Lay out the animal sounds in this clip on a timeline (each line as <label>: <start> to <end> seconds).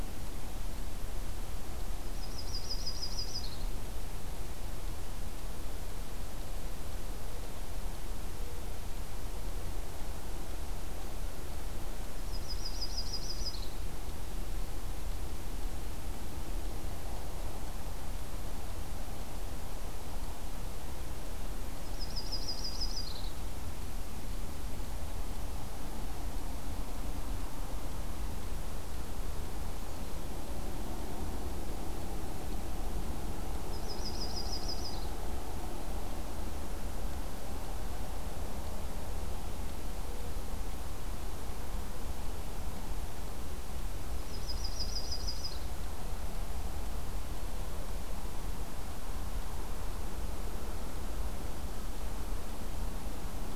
Yellow-rumped Warbler (Setophaga coronata): 2.0 to 3.7 seconds
Mourning Dove (Zenaida macroura): 8.2 to 9.7 seconds
Yellow-rumped Warbler (Setophaga coronata): 12.2 to 13.8 seconds
Yellow-rumped Warbler (Setophaga coronata): 21.8 to 23.3 seconds
Yellow-rumped Warbler (Setophaga coronata): 33.7 to 35.1 seconds
Yellow-rumped Warbler (Setophaga coronata): 44.1 to 45.7 seconds